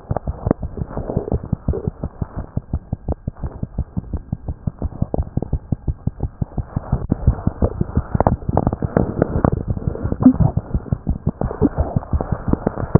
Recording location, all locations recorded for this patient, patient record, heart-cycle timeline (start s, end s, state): mitral valve (MV)
aortic valve (AV)+mitral valve (MV)
#Age: Neonate
#Sex: Female
#Height: 50.0 cm
#Weight: 3.8 kg
#Pregnancy status: False
#Murmur: Absent
#Murmur locations: nan
#Most audible location: nan
#Systolic murmur timing: nan
#Systolic murmur shape: nan
#Systolic murmur grading: nan
#Systolic murmur pitch: nan
#Systolic murmur quality: nan
#Diastolic murmur timing: nan
#Diastolic murmur shape: nan
#Diastolic murmur grading: nan
#Diastolic murmur pitch: nan
#Diastolic murmur quality: nan
#Outcome: Abnormal
#Campaign: 2015 screening campaign
0.00	2.34	unannotated
2.34	2.47	S1
2.47	2.54	systole
2.54	2.61	S2
2.61	2.71	diastole
2.71	2.80	S1
2.80	2.91	systole
2.91	2.97	S2
2.97	3.07	diastole
3.07	3.14	S1
3.14	3.26	systole
3.26	3.32	S2
3.32	3.40	diastole
3.40	3.50	S1
3.50	3.60	systole
3.60	3.66	S2
3.66	3.76	diastole
3.76	3.85	S1
3.85	3.95	systole
3.95	4.01	S2
4.01	4.12	diastole
4.12	4.20	S1
4.20	4.30	systole
4.30	4.37	S2
4.37	4.46	diastole
4.46	4.54	S1
4.54	4.65	systole
4.65	4.71	S2
4.71	4.81	diastole
4.81	4.89	S1
4.89	4.99	systole
4.99	5.06	S2
5.06	5.16	diastole
5.16	5.26	S1
5.26	5.33	systole
5.33	5.41	S2
5.41	5.51	diastole
5.51	5.59	S1
5.59	5.70	systole
5.70	5.76	S2
5.76	5.86	diastole
5.86	5.94	S1
5.94	12.99	unannotated